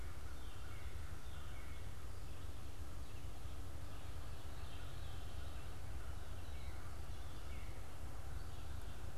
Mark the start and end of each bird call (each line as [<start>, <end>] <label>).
[0.00, 9.17] American Crow (Corvus brachyrhynchos)
[0.00, 9.17] Northern Cardinal (Cardinalis cardinalis)
[4.38, 5.88] Veery (Catharus fuscescens)